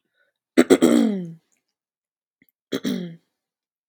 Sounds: Throat clearing